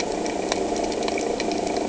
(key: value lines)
label: anthrophony, boat engine
recorder: HydroMoth